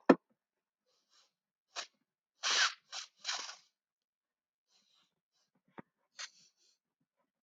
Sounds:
Sniff